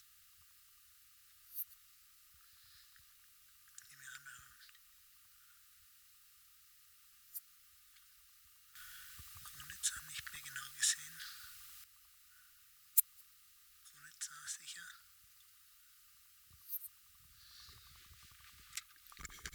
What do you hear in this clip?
Poecilimon ornatus, an orthopteran